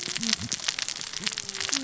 {"label": "biophony, cascading saw", "recorder": "SoundTrap 600 or HydroMoth"}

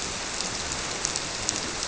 {"label": "biophony", "recorder": "SoundTrap 300"}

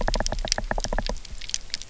{"label": "biophony, knock", "recorder": "SoundTrap 300"}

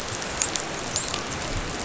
{"label": "biophony, dolphin", "recorder": "SoundTrap 500"}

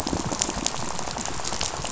{"label": "biophony, rattle", "recorder": "SoundTrap 500"}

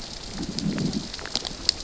{"label": "biophony, growl", "recorder": "SoundTrap 600 or HydroMoth"}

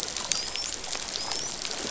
{"label": "biophony, dolphin", "recorder": "SoundTrap 500"}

